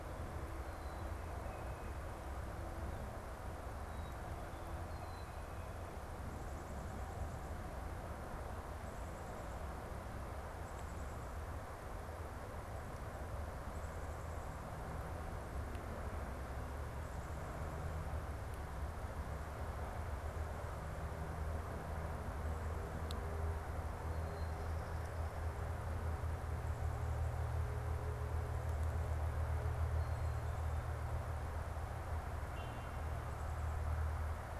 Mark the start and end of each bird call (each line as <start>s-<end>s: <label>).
1.1s-2.1s: Tufted Titmouse (Baeolophus bicolor)
3.5s-5.6s: Black-capped Chickadee (Poecile atricapillus)
10.4s-11.4s: unidentified bird
24.2s-25.5s: Black-capped Chickadee (Poecile atricapillus)
29.8s-31.1s: Black-capped Chickadee (Poecile atricapillus)
33.1s-34.2s: Black-capped Chickadee (Poecile atricapillus)